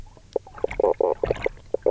{"label": "biophony, knock croak", "recorder": "SoundTrap 300"}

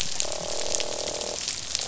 {"label": "biophony, croak", "recorder": "SoundTrap 500"}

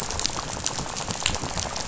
{"label": "biophony, rattle", "recorder": "SoundTrap 500"}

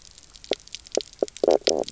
{"label": "biophony, knock croak", "recorder": "SoundTrap 300"}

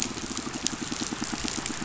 {"label": "biophony, pulse", "recorder": "SoundTrap 500"}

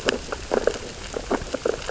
{"label": "biophony, sea urchins (Echinidae)", "recorder": "SoundTrap 600 or HydroMoth"}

